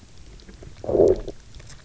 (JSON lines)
{"label": "biophony, low growl", "recorder": "SoundTrap 300"}